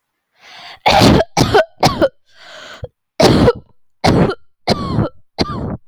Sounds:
Cough